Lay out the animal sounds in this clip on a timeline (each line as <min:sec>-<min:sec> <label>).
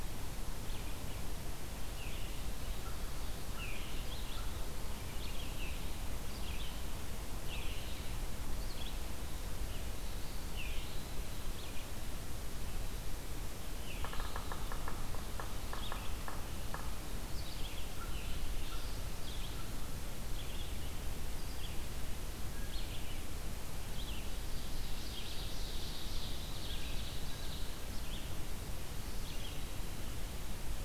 0:00.0-0:30.8 Red-eyed Vireo (Vireo olivaceus)
0:02.6-0:04.7 American Crow (Corvus brachyrhynchos)
0:13.9-0:17.0 Yellow-bellied Sapsucker (Sphyrapicus varius)
0:17.9-0:20.1 American Crow (Corvus brachyrhynchos)
0:24.5-0:27.7 Ovenbird (Seiurus aurocapilla)